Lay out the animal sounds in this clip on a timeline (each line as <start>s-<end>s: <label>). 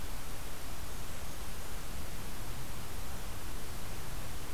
0.7s-1.9s: Blackburnian Warbler (Setophaga fusca)